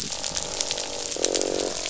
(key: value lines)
label: biophony, croak
recorder: SoundTrap 500